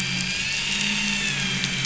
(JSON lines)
{"label": "anthrophony, boat engine", "recorder": "SoundTrap 500"}